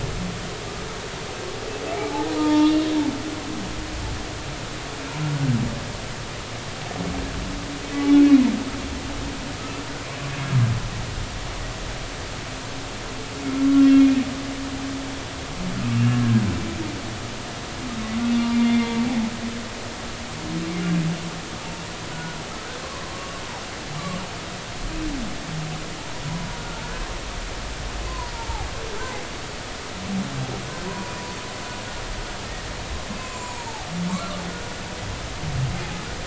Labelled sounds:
2.3	2.8	humpback whale, 0.86 to 3.7 kHz
9.6	9.9	humpback whale, 1.2 to 1.4 kHz
13.4	14.1	humpback whale, 2.1 to 3.3 kHz
15.9	16.2	humpback whale, 2.7 to 2.8 kHz
18.5	18.9	humpback whale, 2.0 to 2.2 kHz
22.1	22.4	humpback whale, 1.3 to 1.5 kHz
26.8	27.1	humpback whale, 1.4 to 1.6 kHz
28.1	28.7	humpback whale, 0.80 to 1.1 kHz
30.9	31.1	humpback whale, 0.93 to 1.1 kHz
33.1	33.9	humpback whale, 0.80 to 7.6 kHz

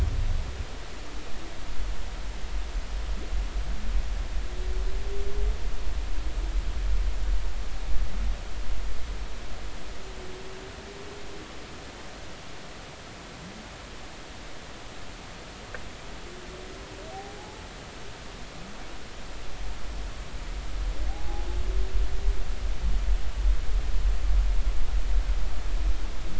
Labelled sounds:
17.1	17.6	humpback whale, 0.80 to 0.93 kHz
21.1	21.5	humpback whale, 0.80 to 0.90 kHz

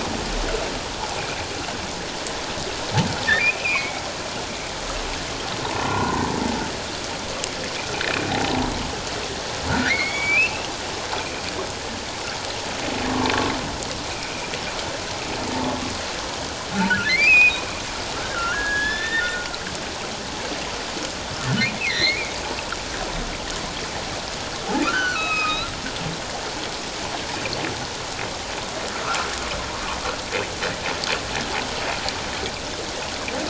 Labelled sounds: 3.4	4.0	humpback whale, 2.0 to 2.7 kHz
5.8	6.2	humpback whale, 0.88 to 1.6 kHz
8.3	8.5	humpback whale, 0.78 to 0.97 kHz
9.7	10.7	humpback whale, 1.3 to 2.9 kHz
11.2	11.4	humpback whale, 2.3 to 2.5 kHz
16.9	17.6	humpback whale, 1.3 to 5.3 kHz
18.2	19.5	humpback whale, 1.3 to 3.8 kHz
21.8	22.3	humpback whale, 1.8 to 4.4 kHz
24.8	25.7	humpback whale, 1.1 to 5.2 kHz

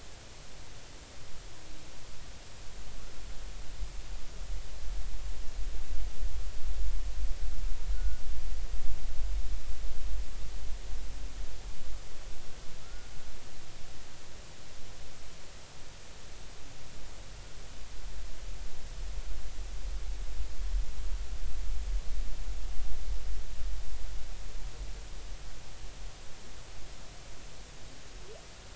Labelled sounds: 7.9	8.2	humpback whale, 1.3 to 1.5 kHz
12.8	13.1	humpback whale, 1.2 to 1.5 kHz

